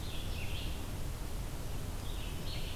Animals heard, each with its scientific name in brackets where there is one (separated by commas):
Scarlet Tanager (Piranga olivacea), Red-eyed Vireo (Vireo olivaceus)